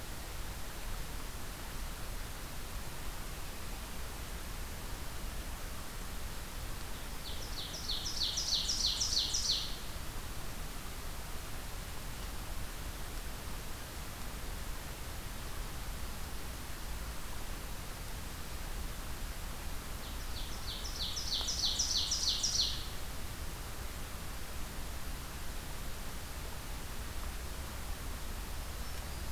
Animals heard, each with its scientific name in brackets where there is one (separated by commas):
Black-throated Green Warbler (Setophaga virens), Ovenbird (Seiurus aurocapilla)